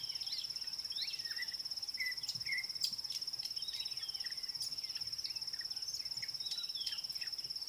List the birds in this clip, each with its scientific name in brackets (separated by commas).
Red-backed Scrub-Robin (Cercotrichas leucophrys)